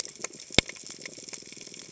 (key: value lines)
label: biophony
recorder: HydroMoth